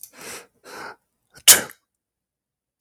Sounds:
Sneeze